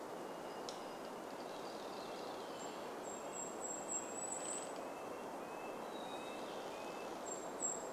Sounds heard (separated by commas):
Golden-crowned Kinglet song, MacGillivray's Warbler song, Hermit Thrush song, tree creak, Red-breasted Nuthatch song, unidentified sound, Varied Thrush song